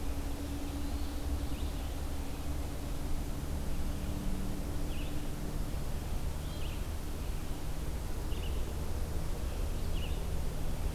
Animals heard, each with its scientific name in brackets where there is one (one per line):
Red-eyed Vireo (Vireo olivaceus)